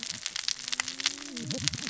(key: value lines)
label: biophony, cascading saw
recorder: SoundTrap 600 or HydroMoth